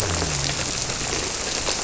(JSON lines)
{"label": "biophony", "recorder": "SoundTrap 300"}